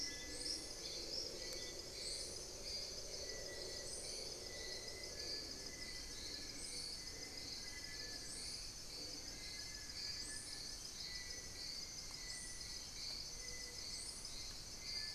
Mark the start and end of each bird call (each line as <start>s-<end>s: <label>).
0.0s-15.1s: Little Tinamou (Crypturellus soui)
4.9s-10.5s: Long-billed Woodcreeper (Nasica longirostris)
10.7s-12.9s: Black-faced Antthrush (Formicarius analis)